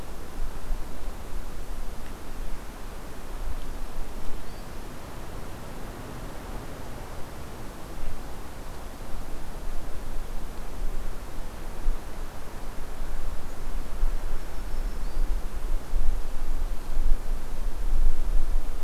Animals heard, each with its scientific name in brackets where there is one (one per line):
Black-throated Green Warbler (Setophaga virens)